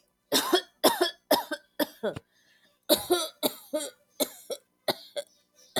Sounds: Cough